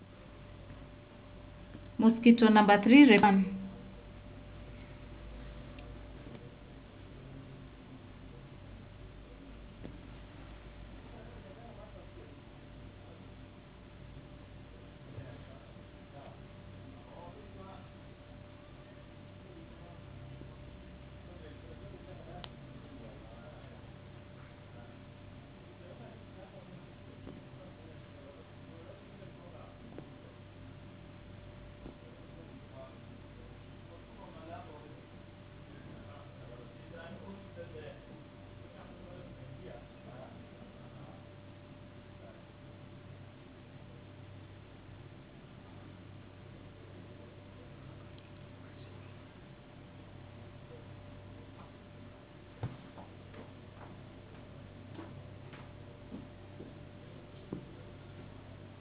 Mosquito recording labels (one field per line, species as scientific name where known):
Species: no mosquito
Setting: insect culture